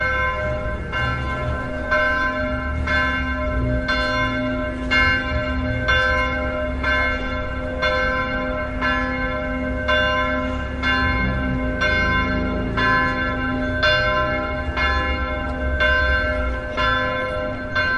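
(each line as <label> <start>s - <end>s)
A church bell rings in a steady pattern. 0.0s - 18.0s
A woman’s voice is heard in the distance. 6.9s - 7.4s
Multiple voices are heard quietly in the background. 13.4s - 18.0s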